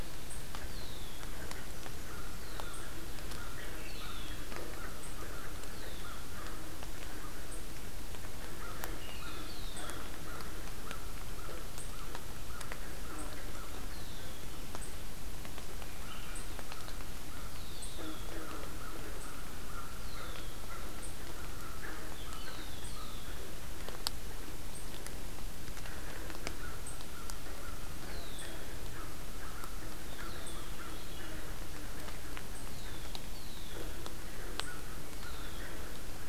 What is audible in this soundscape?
Red-winged Blackbird, American Crow, Swainson's Thrush